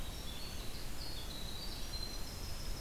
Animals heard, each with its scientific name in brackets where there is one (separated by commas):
Red-eyed Vireo (Vireo olivaceus), Winter Wren (Troglodytes hiemalis)